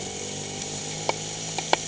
{"label": "anthrophony, boat engine", "recorder": "HydroMoth"}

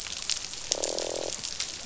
{"label": "biophony, croak", "recorder": "SoundTrap 500"}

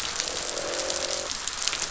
{"label": "biophony, croak", "recorder": "SoundTrap 500"}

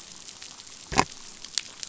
{"label": "biophony", "recorder": "SoundTrap 500"}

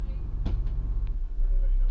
{"label": "anthrophony, boat engine", "recorder": "SoundTrap 300"}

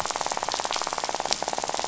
{"label": "biophony, rattle", "recorder": "SoundTrap 500"}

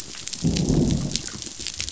{"label": "biophony, growl", "recorder": "SoundTrap 500"}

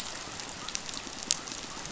{"label": "biophony", "recorder": "SoundTrap 500"}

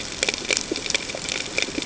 {"label": "ambient", "recorder": "HydroMoth"}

